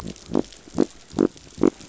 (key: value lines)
label: biophony
recorder: SoundTrap 500